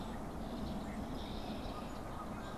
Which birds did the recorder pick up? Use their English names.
Canada Goose, Red-winged Blackbird, unidentified bird